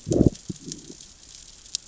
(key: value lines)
label: biophony, growl
recorder: SoundTrap 600 or HydroMoth